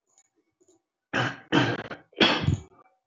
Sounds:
Throat clearing